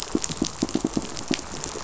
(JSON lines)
{"label": "biophony, pulse", "recorder": "SoundTrap 500"}